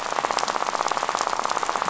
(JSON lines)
{"label": "biophony, rattle", "recorder": "SoundTrap 500"}